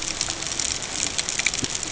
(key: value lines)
label: ambient
recorder: HydroMoth